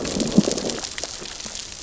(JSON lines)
{"label": "biophony, growl", "recorder": "SoundTrap 600 or HydroMoth"}